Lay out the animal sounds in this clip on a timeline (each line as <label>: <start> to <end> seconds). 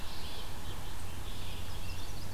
Red-eyed Vireo (Vireo olivaceus): 0.0 to 2.3 seconds
Yellow-bellied Sapsucker (Sphyrapicus varius): 0.0 to 2.3 seconds
Chestnut-sided Warbler (Setophaga pensylvanica): 1.4 to 2.3 seconds
Scarlet Tanager (Piranga olivacea): 1.6 to 2.3 seconds